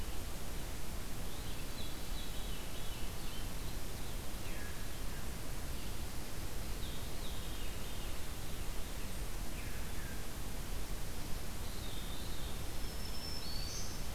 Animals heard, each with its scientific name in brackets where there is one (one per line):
Ovenbird (Seiurus aurocapilla)
Black-throated Green Warbler (Setophaga virens)
Veery (Catharus fuscescens)